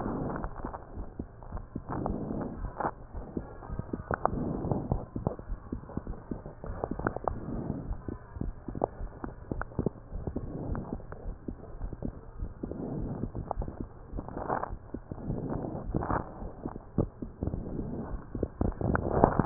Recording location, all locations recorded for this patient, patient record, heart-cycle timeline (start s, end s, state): aortic valve (AV)
aortic valve (AV)+pulmonary valve (PV)+tricuspid valve (TV)+mitral valve (MV)
#Age: Adolescent
#Sex: Male
#Height: nan
#Weight: nan
#Pregnancy status: False
#Murmur: Absent
#Murmur locations: nan
#Most audible location: nan
#Systolic murmur timing: nan
#Systolic murmur shape: nan
#Systolic murmur grading: nan
#Systolic murmur pitch: nan
#Systolic murmur quality: nan
#Diastolic murmur timing: nan
#Diastolic murmur shape: nan
#Diastolic murmur grading: nan
#Diastolic murmur pitch: nan
#Diastolic murmur quality: nan
#Outcome: Normal
#Campaign: 2015 screening campaign
0.00	0.72	unannotated
0.72	0.96	diastole
0.96	1.06	S1
1.06	1.18	systole
1.18	1.26	S2
1.26	1.50	diastole
1.50	1.62	S1
1.62	1.70	systole
1.70	1.80	S2
1.80	2.02	diastole
2.02	2.14	S1
2.14	2.27	systole
2.27	2.36	S2
2.36	2.58	diastole
2.58	2.70	S1
2.70	2.80	systole
2.80	2.90	S2
2.90	3.14	diastole
3.14	3.24	S1
3.24	3.34	systole
3.34	3.44	S2
3.44	3.70	diastole
3.70	3.81	S1
3.81	3.90	systole
3.90	4.04	S2
4.04	4.30	diastole
4.30	4.46	S1
4.46	4.52	systole
4.52	4.66	S2
4.66	4.88	diastole
4.88	5.02	S1
5.02	5.14	systole
5.14	5.26	S2
5.26	5.48	diastole
5.48	5.60	S1
5.60	5.68	systole
5.68	5.80	S2
5.80	6.05	diastole
6.05	6.18	S1
6.18	6.29	systole
6.29	6.42	S2
6.42	6.68	diastole
6.68	6.82	S1
6.82	6.92	systole
6.92	7.06	S2
7.06	7.28	diastole
7.28	19.46	unannotated